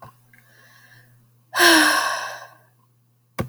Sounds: Sigh